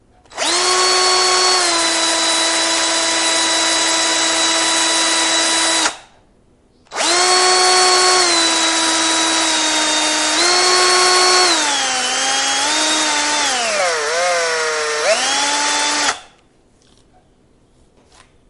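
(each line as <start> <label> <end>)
0.3 A drilling machine is operating. 6.0
6.9 A drilling machine is operating. 16.2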